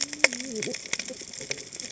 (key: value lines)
label: biophony, cascading saw
recorder: HydroMoth